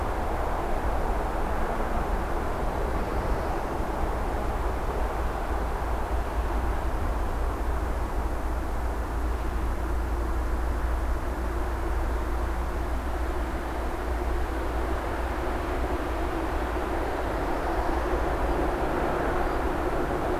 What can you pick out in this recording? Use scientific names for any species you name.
forest ambience